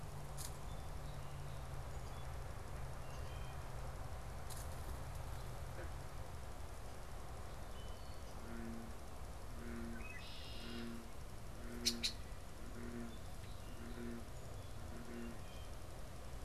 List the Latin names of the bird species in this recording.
Hylocichla mustelina, Agelaius phoeniceus, Melospiza melodia